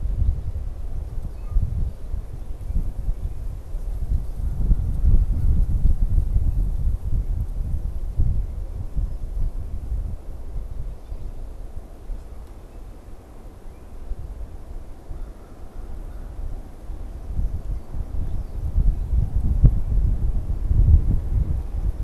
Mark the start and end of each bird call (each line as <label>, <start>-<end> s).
Red-winged Blackbird (Agelaius phoeniceus), 1.1-1.7 s
Canada Goose (Branta canadensis), 1.4-1.7 s